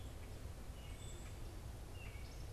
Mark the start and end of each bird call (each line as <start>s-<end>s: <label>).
0.0s-2.5s: Black-capped Chickadee (Poecile atricapillus)
0.0s-2.5s: Gray Catbird (Dumetella carolinensis)